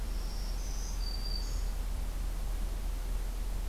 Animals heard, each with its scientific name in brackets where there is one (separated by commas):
Black-throated Green Warbler (Setophaga virens)